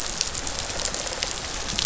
{"label": "biophony", "recorder": "SoundTrap 500"}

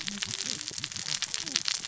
{"label": "biophony, cascading saw", "recorder": "SoundTrap 600 or HydroMoth"}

